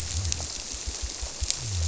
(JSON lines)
{"label": "biophony", "recorder": "SoundTrap 300"}